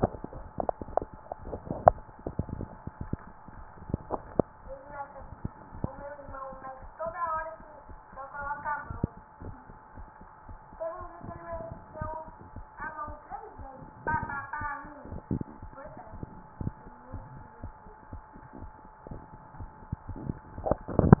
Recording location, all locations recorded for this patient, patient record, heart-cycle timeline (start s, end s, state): mitral valve (MV)
aortic valve (AV)+pulmonary valve (PV)+tricuspid valve (TV)+mitral valve (MV)
#Age: nan
#Sex: Female
#Height: nan
#Weight: nan
#Pregnancy status: True
#Murmur: Absent
#Murmur locations: nan
#Most audible location: nan
#Systolic murmur timing: nan
#Systolic murmur shape: nan
#Systolic murmur grading: nan
#Systolic murmur pitch: nan
#Systolic murmur quality: nan
#Diastolic murmur timing: nan
#Diastolic murmur shape: nan
#Diastolic murmur grading: nan
#Diastolic murmur pitch: nan
#Diastolic murmur quality: nan
#Outcome: Abnormal
#Campaign: 2015 screening campaign
0.00	9.40	unannotated
9.40	9.56	S1
9.56	9.68	systole
9.68	9.76	S2
9.76	9.96	diastole
9.96	10.08	S1
10.08	10.20	systole
10.20	10.28	S2
10.28	10.48	diastole
10.48	10.59	S1
10.59	10.72	systole
10.72	10.80	S2
10.80	11.00	diastole
11.00	11.11	S1
11.11	11.24	systole
11.24	11.34	S2
11.34	11.52	diastole
11.52	11.62	S1
11.62	11.70	systole
11.70	11.80	S2
11.80	12.00	diastole
12.00	12.14	S1
12.14	12.26	systole
12.26	12.34	S2
12.34	12.56	diastole
12.56	12.66	S1
12.66	12.79	systole
12.79	12.88	S2
12.88	13.08	diastole
13.08	13.18	S1
13.18	13.30	systole
13.30	13.38	S2
13.38	13.60	diastole
13.60	13.70	S1
13.70	13.78	systole
13.78	13.88	S2
13.88	14.08	diastole
14.08	14.22	S1
14.22	21.20	unannotated